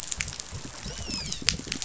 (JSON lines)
{"label": "biophony, dolphin", "recorder": "SoundTrap 500"}